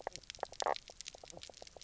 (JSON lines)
{"label": "biophony, knock croak", "recorder": "SoundTrap 300"}